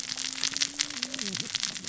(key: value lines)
label: biophony, cascading saw
recorder: SoundTrap 600 or HydroMoth